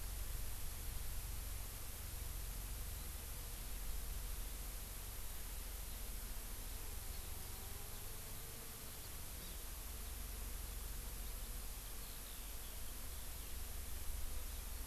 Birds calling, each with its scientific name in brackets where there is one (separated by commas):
Eurasian Skylark (Alauda arvensis)